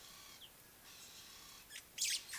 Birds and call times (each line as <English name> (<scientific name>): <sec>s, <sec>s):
Ring-necked Dove (Streptopelia capicola): 1.3s